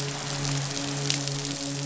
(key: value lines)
label: biophony, midshipman
recorder: SoundTrap 500